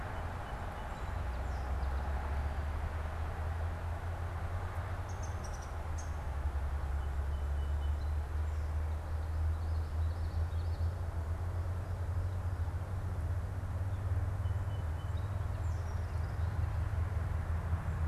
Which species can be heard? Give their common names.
Song Sparrow, Downy Woodpecker, Common Yellowthroat